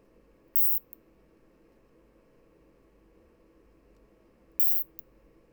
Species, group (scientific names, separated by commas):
Isophya obtusa, Orthoptera